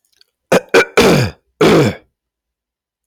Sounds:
Throat clearing